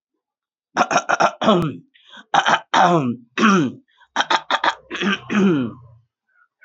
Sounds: Throat clearing